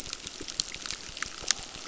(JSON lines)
{"label": "biophony, crackle", "recorder": "SoundTrap 600"}